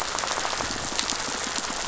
{"label": "biophony, rattle", "recorder": "SoundTrap 500"}
{"label": "biophony", "recorder": "SoundTrap 500"}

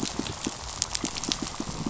{"label": "biophony, pulse", "recorder": "SoundTrap 500"}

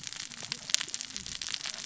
{"label": "biophony, cascading saw", "recorder": "SoundTrap 600 or HydroMoth"}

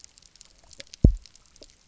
{"label": "biophony, double pulse", "recorder": "SoundTrap 300"}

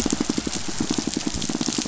{"label": "biophony, pulse", "recorder": "SoundTrap 500"}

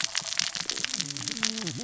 {"label": "biophony, cascading saw", "recorder": "SoundTrap 600 or HydroMoth"}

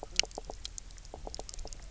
{"label": "biophony, knock croak", "recorder": "SoundTrap 300"}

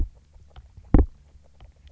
{"label": "biophony, grazing", "recorder": "SoundTrap 300"}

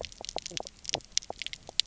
{"label": "biophony, knock croak", "recorder": "SoundTrap 300"}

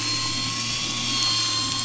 {"label": "anthrophony, boat engine", "recorder": "SoundTrap 500"}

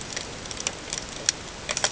{"label": "ambient", "recorder": "HydroMoth"}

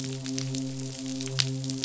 {"label": "biophony, midshipman", "recorder": "SoundTrap 500"}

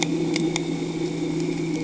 {"label": "anthrophony, boat engine", "recorder": "HydroMoth"}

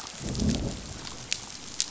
{"label": "biophony, growl", "recorder": "SoundTrap 500"}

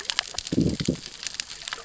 {"label": "biophony, growl", "recorder": "SoundTrap 600 or HydroMoth"}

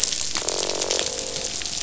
{"label": "biophony, croak", "recorder": "SoundTrap 500"}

